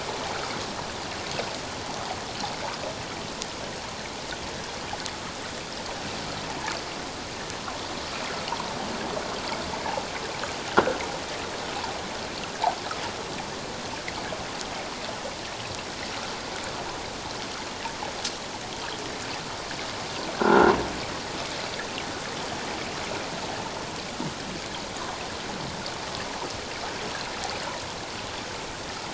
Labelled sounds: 20.3	20.7	croaking sound likely from a nearby submerged object, 1.3 to 1.7 kHz

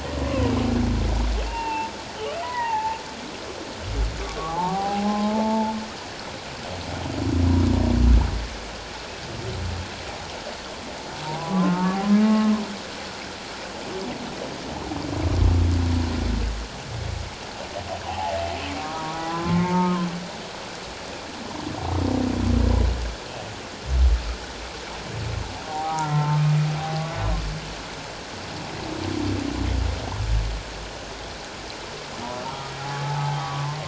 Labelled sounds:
0.3	0.5	humpback whale, 0.94 to 1.2 kHz
1.4	1.9	humpback whale, 0.81 to 2.8 kHz
2.4	3.0	humpback whale, 0.78 to 2.0 kHz
4.4	5.7	humpback whale, 0.78 to 1.2 kHz
11.2	12.0	humpback whale, 0.78 to 1.5 kHz
12.2	12.5	humpback whale, 1.0 to 1.1 kHz
18.1	20.1	humpback whale, 0.78 to 1.4 kHz
25.7	26.5	humpback whale, 0.78 to 1.4 kHz
26.8	27.1	humpback whale, 0.78 to 0.84 kHz
32.8	33.7	humpback whale, 0.78 to 1.3 kHz

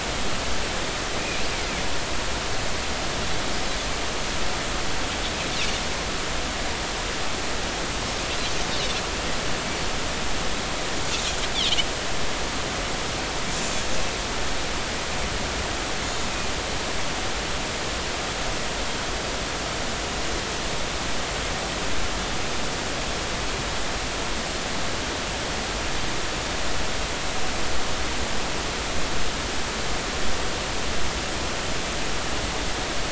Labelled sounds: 11.5	11.9	Pacific white-sided dolphin, 2.8 to 3.7 kHz
16.2	16.5	Pacific white-sided dolphin, 2.4 to 2.6 kHz

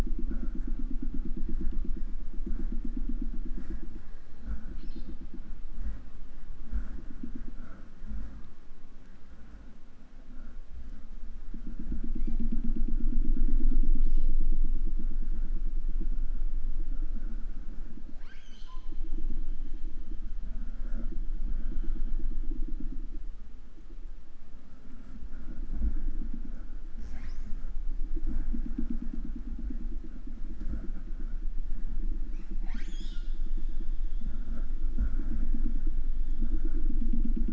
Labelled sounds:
4.7	5.3	killer whale, southern resident, 0.39 to 6.0 kHz
12.1	12.6	killer whale, 0.47 to 8.0 kHz
14.0	14.7	killer whale, southern resident, 0.34 to 7.2 kHz
18.0	19.1	killer whale, southern resident, J pod, call S13i, 0.30 to 8.0 kHz
27.0	27.9	killer whale, southern resident, J pod, call S08i, 0.29 to 7.8 kHz
32.2	33.6	killer whale, 0.38 to 8.0 kHz

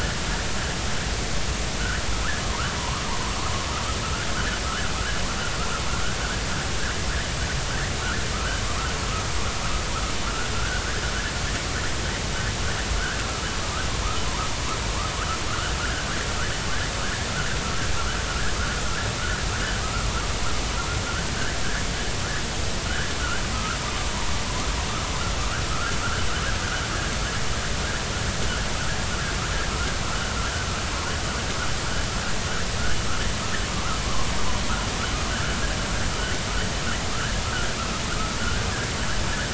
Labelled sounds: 2.4	3.0	vessel noise, 0.86 to 1.7 kHz
4.0	4.6	vessel noise, 1.3 to 1.9 kHz
8.3	8.6	vessel noise, 1.2 to 1.6 kHz
10.5	10.8	vessel noise, 1.3 to 1.7 kHz
15.5	16.1	vessel noise, 1.2 to 1.8 kHz
22.9	23.8	vessel noise, 1.2 to 1.8 kHz
25.7	26.0	vessel noise, 1.2 to 1.5 kHz
35.3	35.6	vessel noise, 1.4 to 1.8 kHz
38.4	38.7	vessel noise, 1.3 to 1.6 kHz

